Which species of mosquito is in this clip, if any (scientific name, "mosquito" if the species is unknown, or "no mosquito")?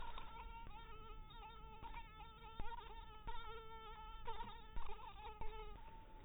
mosquito